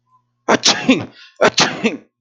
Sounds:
Sneeze